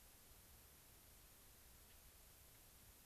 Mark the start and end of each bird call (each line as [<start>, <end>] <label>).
[1.76, 2.06] Gray-crowned Rosy-Finch (Leucosticte tephrocotis)